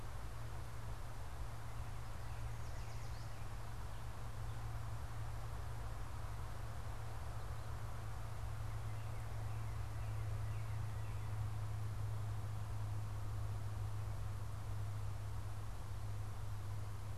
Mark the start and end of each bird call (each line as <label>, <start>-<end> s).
Yellow Warbler (Setophaga petechia), 2.4-3.4 s
Northern Cardinal (Cardinalis cardinalis), 8.2-11.6 s